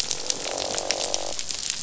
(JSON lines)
{"label": "biophony, croak", "recorder": "SoundTrap 500"}